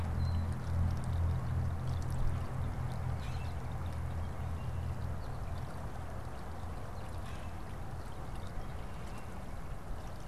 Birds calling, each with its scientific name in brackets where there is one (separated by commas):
Common Grackle (Quiscalus quiscula), American Goldfinch (Spinus tristis)